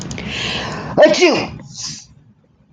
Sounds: Sneeze